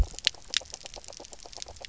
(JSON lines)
{"label": "biophony, knock croak", "recorder": "SoundTrap 300"}